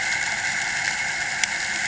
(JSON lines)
{"label": "anthrophony, boat engine", "recorder": "HydroMoth"}